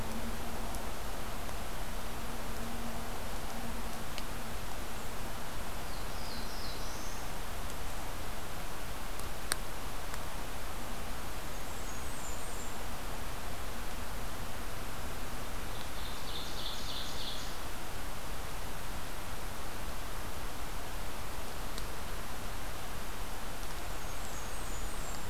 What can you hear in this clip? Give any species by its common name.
Black-throated Blue Warbler, Blackburnian Warbler, Ovenbird